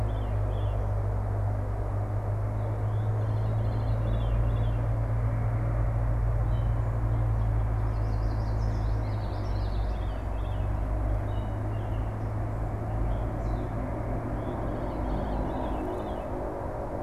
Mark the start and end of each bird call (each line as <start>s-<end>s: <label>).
0.0s-4.9s: Veery (Catharus fuscescens)
7.7s-9.1s: Yellow Warbler (Setophaga petechia)
8.7s-10.0s: Common Yellowthroat (Geothlypis trichas)
8.7s-10.9s: Veery (Catharus fuscescens)
14.2s-16.3s: Veery (Catharus fuscescens)